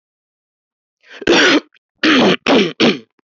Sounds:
Throat clearing